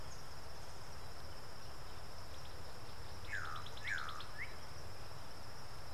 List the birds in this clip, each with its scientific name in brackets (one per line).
Slate-colored Boubou (Laniarius funebris)
African Bare-eyed Thrush (Turdus tephronotus)